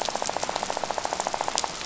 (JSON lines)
{"label": "biophony, rattle", "recorder": "SoundTrap 500"}